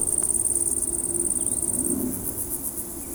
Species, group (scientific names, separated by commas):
Tettigonia viridissima, Orthoptera